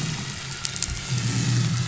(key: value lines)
label: anthrophony, boat engine
recorder: SoundTrap 500